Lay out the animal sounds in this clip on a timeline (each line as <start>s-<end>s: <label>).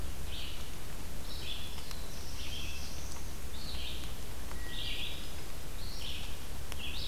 0.0s-7.1s: Red-eyed Vireo (Vireo olivaceus)
1.4s-3.5s: Black-throated Blue Warbler (Setophaga caerulescens)
4.4s-5.2s: Wood Thrush (Hylocichla mustelina)